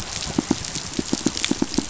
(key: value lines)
label: biophony, pulse
recorder: SoundTrap 500